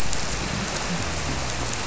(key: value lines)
label: biophony
recorder: SoundTrap 300